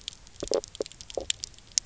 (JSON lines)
{"label": "biophony, knock croak", "recorder": "SoundTrap 300"}